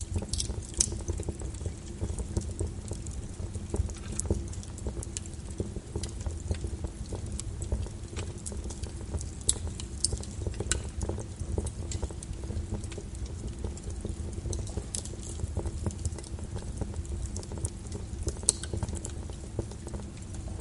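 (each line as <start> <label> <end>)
0.0 Wood burning with cracking sounds. 20.6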